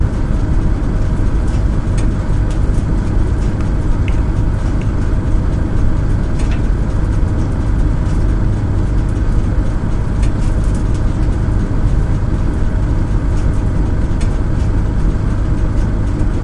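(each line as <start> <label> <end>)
0.0 A dryer runs, spinning laundry irregularly inside the drum. 16.4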